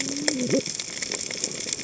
{"label": "biophony, cascading saw", "recorder": "HydroMoth"}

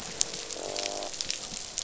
{"label": "biophony, croak", "recorder": "SoundTrap 500"}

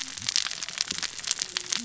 {"label": "biophony, cascading saw", "recorder": "SoundTrap 600 or HydroMoth"}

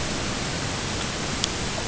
{"label": "ambient", "recorder": "HydroMoth"}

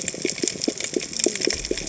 {"label": "biophony, cascading saw", "recorder": "HydroMoth"}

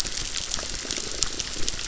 {"label": "biophony, crackle", "recorder": "SoundTrap 600"}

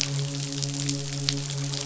{"label": "biophony, midshipman", "recorder": "SoundTrap 500"}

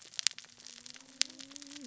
{"label": "biophony, cascading saw", "recorder": "SoundTrap 600 or HydroMoth"}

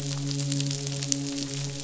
{"label": "biophony, midshipman", "recorder": "SoundTrap 500"}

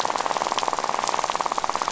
{"label": "biophony, rattle", "recorder": "SoundTrap 500"}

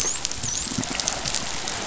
{"label": "biophony, dolphin", "recorder": "SoundTrap 500"}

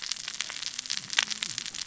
{"label": "biophony, cascading saw", "recorder": "SoundTrap 600 or HydroMoth"}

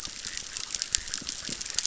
{"label": "biophony, chorus", "recorder": "SoundTrap 600"}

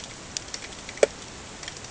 {"label": "ambient", "recorder": "HydroMoth"}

